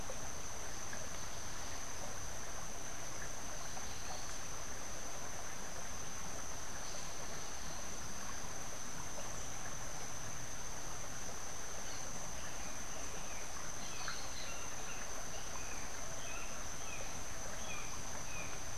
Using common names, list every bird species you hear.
Brown Jay